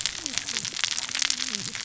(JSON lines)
{"label": "biophony, cascading saw", "recorder": "SoundTrap 600 or HydroMoth"}